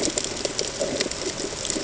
{"label": "ambient", "recorder": "HydroMoth"}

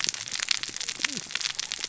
{"label": "biophony, cascading saw", "recorder": "SoundTrap 600 or HydroMoth"}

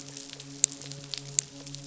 {"label": "biophony, midshipman", "recorder": "SoundTrap 500"}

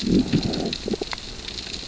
{"label": "biophony, growl", "recorder": "SoundTrap 600 or HydroMoth"}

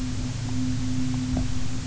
{"label": "anthrophony, boat engine", "recorder": "SoundTrap 300"}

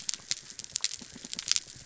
{"label": "biophony", "recorder": "SoundTrap 300"}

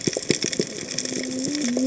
{"label": "biophony, cascading saw", "recorder": "HydroMoth"}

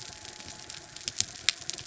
{"label": "anthrophony, mechanical", "recorder": "SoundTrap 300"}
{"label": "biophony", "recorder": "SoundTrap 300"}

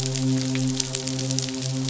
{"label": "biophony, midshipman", "recorder": "SoundTrap 500"}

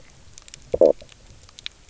{"label": "biophony, stridulation", "recorder": "SoundTrap 300"}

